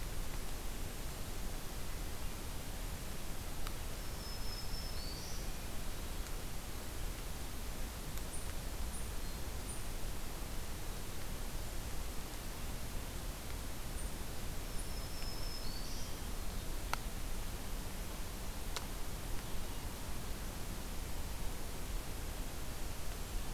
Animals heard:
Black-throated Green Warbler (Setophaga virens), Hermit Thrush (Catharus guttatus)

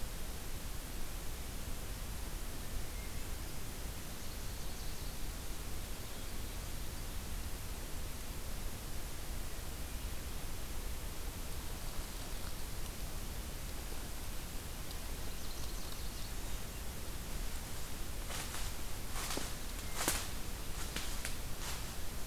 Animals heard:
Nashville Warbler (Leiothlypis ruficapilla)

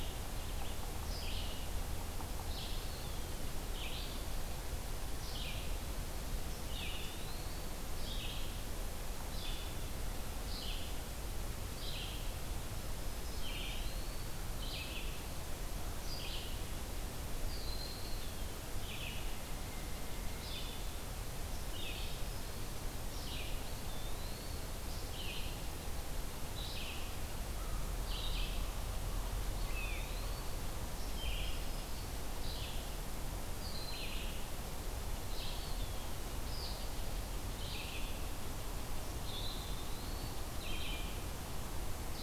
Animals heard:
Black-throated Green Warbler (Setophaga virens), Red-eyed Vireo (Vireo olivaceus), Eastern Wood-Pewee (Contopus virens), Broad-winged Hawk (Buteo platypterus)

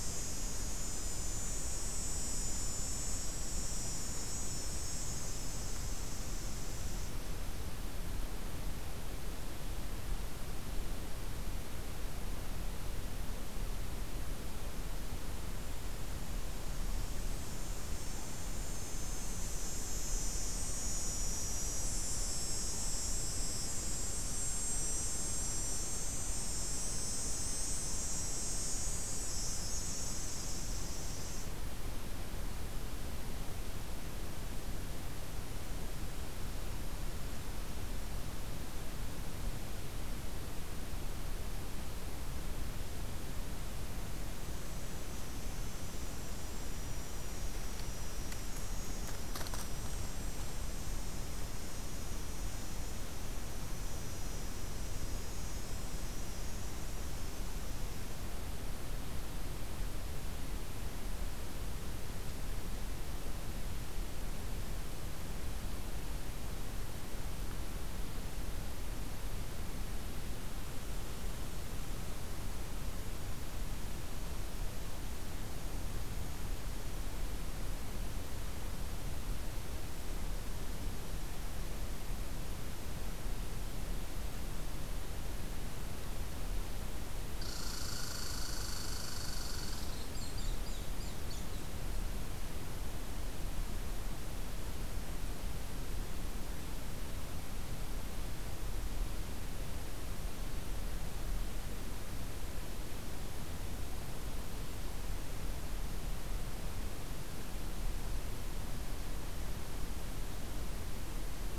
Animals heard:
Red Squirrel (Tamiasciurus hudsonicus)

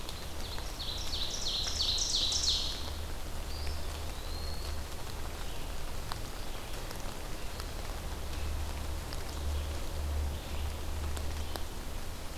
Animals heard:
Ovenbird (Seiurus aurocapilla), Eastern Wood-Pewee (Contopus virens), Red-eyed Vireo (Vireo olivaceus)

